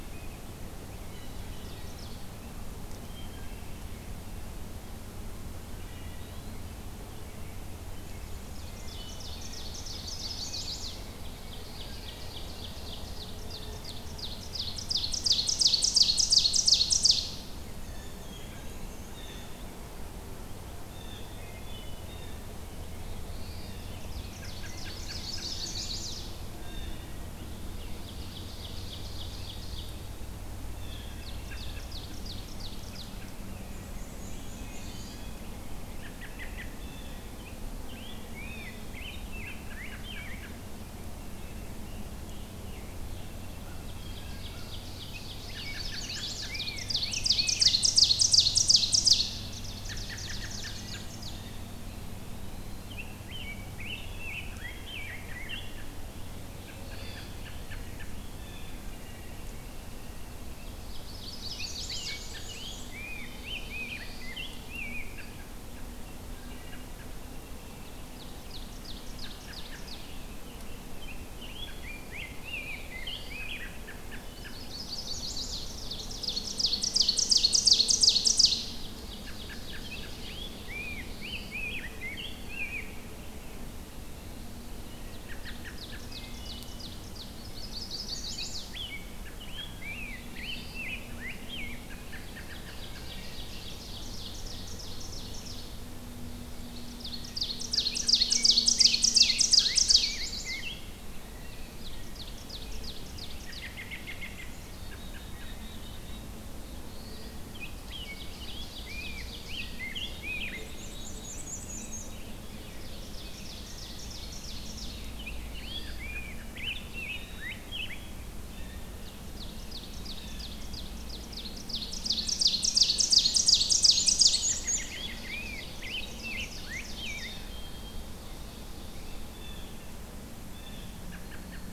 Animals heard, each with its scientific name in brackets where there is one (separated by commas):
Black-throated Blue Warbler (Setophaga caerulescens), Ovenbird (Seiurus aurocapilla), Blue Jay (Cyanocitta cristata), Rose-breasted Grosbeak (Pheucticus ludovicianus), Chestnut-sided Warbler (Setophaga pensylvanica), Black-and-white Warbler (Mniotilta varia), Scarlet Tanager (Piranga olivacea), Wood Thrush (Hylocichla mustelina), American Robin (Turdus migratorius), Eastern Wood-Pewee (Contopus virens), Black-capped Chickadee (Poecile atricapillus)